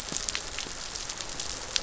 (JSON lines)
{"label": "biophony", "recorder": "SoundTrap 500"}